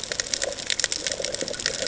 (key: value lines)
label: ambient
recorder: HydroMoth